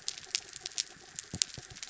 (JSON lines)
{"label": "anthrophony, mechanical", "recorder": "SoundTrap 300"}